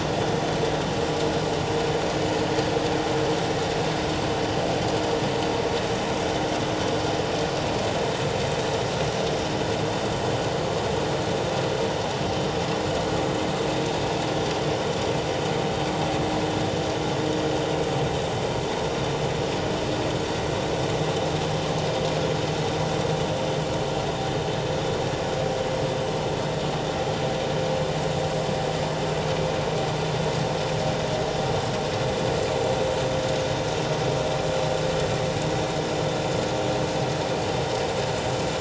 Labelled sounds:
3.1	3.3	vessel noise, 7.4 to 7.6 kHz

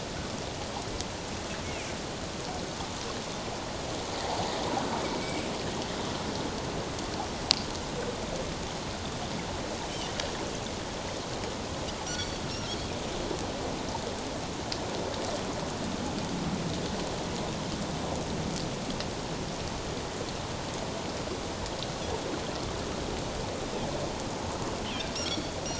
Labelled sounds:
5.0	5.4	Pacific white-sided dolphin, 2.1 to 2.4 kHz
12.1	12.8	Pacific white-sided dolphin, 4.3 to 6.1 kHz
25.1	25.5	Pacific white-sided dolphin, 4.3 to 5.8 kHz

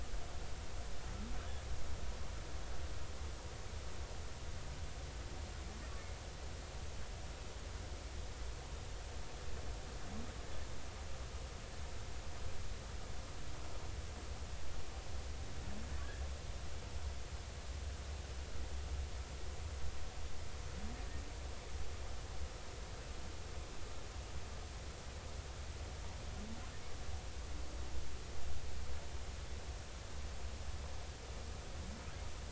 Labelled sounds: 16.0	16.2	humpback whale, 1.3 to 1.8 kHz

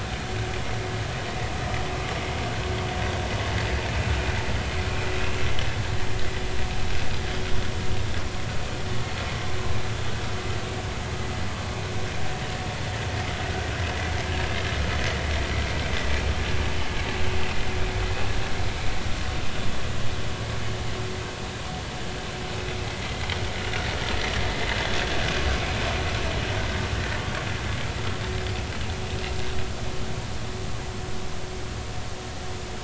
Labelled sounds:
25.5	25.8	vessel noise, 2.2 to 2.6 kHz

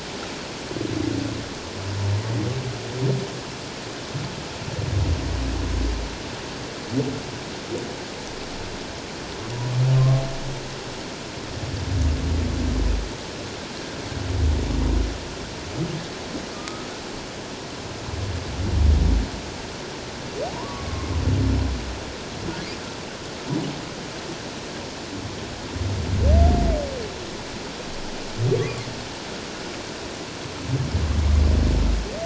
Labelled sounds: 16.5	16.9	humpback whale, 1.2 to 1.3 kHz
20.5	20.9	humpback whale, 0.91 to 1.2 kHz
28.6	28.8	humpback whale, 1.1 to 1.2 kHz

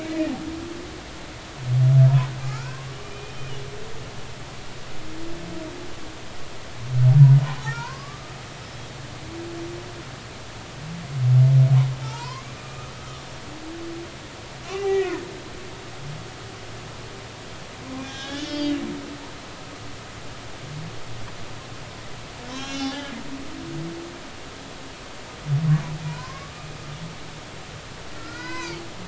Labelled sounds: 0.1	0.3	humpback whale, 1.8 to 2.0 kHz
2.4	3.4	humpback whale, 1.2 to 2.5 kHz
7.6	8.3	humpback whale, 0.90 to 5.7 kHz
12.0	12.5	humpback whale, 0.83 to 4.8 kHz
13.0	13.2	humpback whale, 1.1 to 1.3 kHz
14.8	15.1	humpback whale, 1.8 to 2.0 kHz
18.0	18.8	humpback whale, 1.6 to 6.3 kHz
22.5	23.1	humpback whale, 0.96 to 5.8 kHz
26.1	26.7	humpback whale, 0.93 to 1.2 kHz
28.1	28.8	humpback whale, 0.86 to 5.2 kHz

